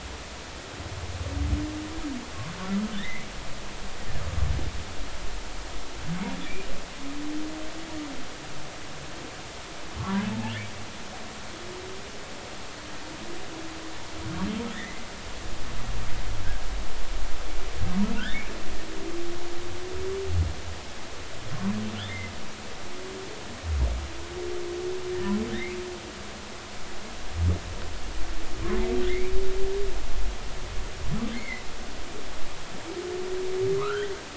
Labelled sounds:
3.0	3.3	humpback whale, 1.7 to 2.4 kHz
14.7	15.0	humpback whale, 1.7 to 2.1 kHz
18.2	18.4	humpback whale, 1.3 to 2.0 kHz
25.5	25.8	humpback whale, 1.5 to 2.7 kHz
29.1	29.3	humpback whale, 2.0 to 2.4 kHz
31.3	31.6	humpback whale, 1.9 to 2.3 kHz
33.8	34.1	humpback whale, 0.99 to 2.0 kHz

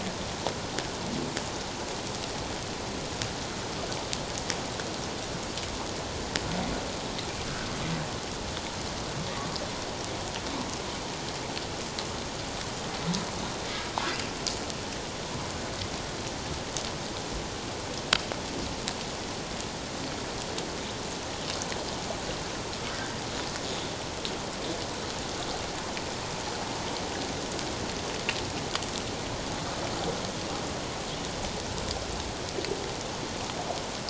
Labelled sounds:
22.9	23.2	humpback whale, 1.5 to 1.7 kHz

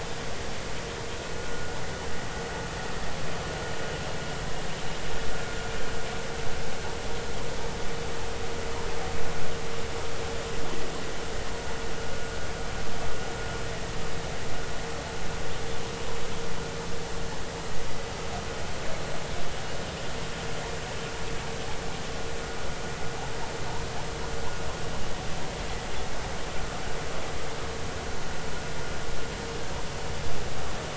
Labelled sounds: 1.4	1.7	vessel noise, 1.4 to 1.5 kHz

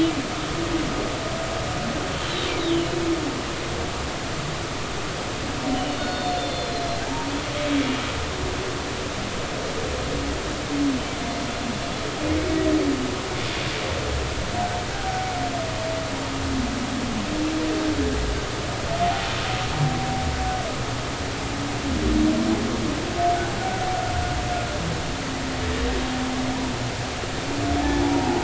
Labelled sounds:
2.3	3.0	humpback whale, 2.8 to 4.1 kHz
5.7	7.3	humpback whale, 0.80 to 4.5 kHz
28.1	28.4	humpback whale, 0.80 to 0.96 kHz

